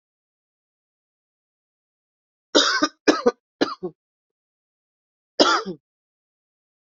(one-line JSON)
{"expert_labels": [{"quality": "ok", "cough_type": "dry", "dyspnea": false, "wheezing": false, "stridor": false, "choking": false, "congestion": false, "nothing": true, "diagnosis": "COVID-19", "severity": "mild"}], "age": 43, "gender": "female", "respiratory_condition": false, "fever_muscle_pain": false, "status": "healthy"}